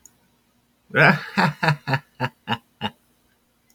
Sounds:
Laughter